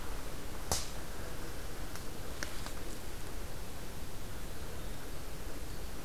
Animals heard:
forest ambience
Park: Katahdin Woods and Waters National Monument